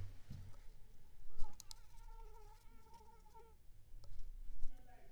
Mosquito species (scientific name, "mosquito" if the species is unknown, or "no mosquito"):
Anopheles squamosus